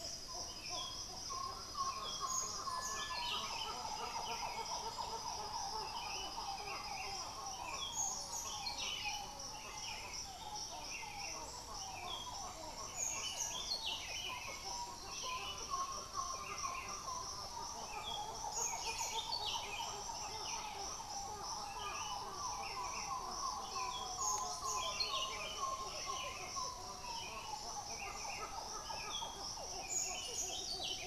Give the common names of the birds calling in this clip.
Buff-throated Saltator